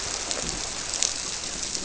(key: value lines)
label: biophony
recorder: SoundTrap 300